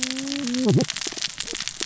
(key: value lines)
label: biophony, cascading saw
recorder: SoundTrap 600 or HydroMoth